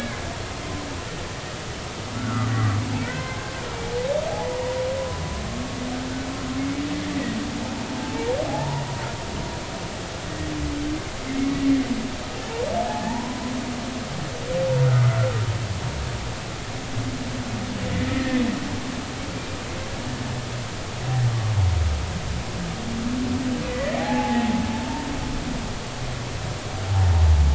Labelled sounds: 2.1	2.8	humpback whale, 1.1 to 1.5 kHz
3.0	3.5	humpback whale, 0.99 to 2.1 kHz
4.3	4.6	humpback whale, 0.80 to 1.0 kHz
8.0	8.9	humpback whale, 0.80 to 0.99 kHz
12.9	13.5	humpback whale, 0.80 to 1.1 kHz
18.1	18.4	humpback whale, 1.7 to 1.9 kHz
23.7	25.1	humpback whale, 0.80 to 2.1 kHz

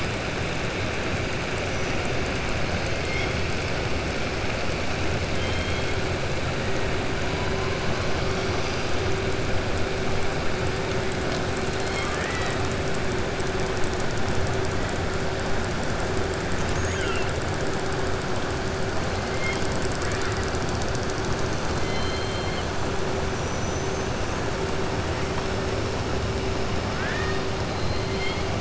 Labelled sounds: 5.3	5.9	killer whale, southern resident, 2.2 to 4.3 kHz
11.7	12.6	killer whale, southern resident, 1.1 to 5.3 kHz
16.8	17.3	killer whale, southern resident, 1.3 to 3.2 kHz
21.7	22.7	killer whale, southern resident, 2.1 to 4.4 kHz
23.3	24.1	killer whale, southern resident, 5.7 to 7.0 kHz
26.9	28.5	killer whale, southern resident, 1.2 to 5.5 kHz

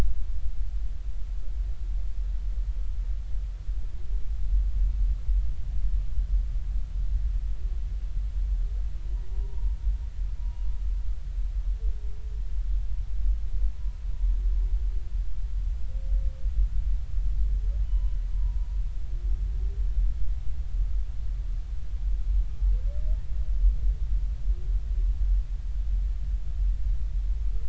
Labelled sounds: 9.3	9.8	humpback whale, 0.86 to 1.1 kHz
10.4	10.7	humpback whale, 2.8 to 2.9 kHz
17.8	18.1	humpback whale, 0.93 to 3.0 kHz

